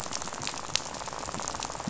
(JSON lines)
{"label": "biophony, rattle", "recorder": "SoundTrap 500"}